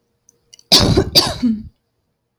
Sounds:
Laughter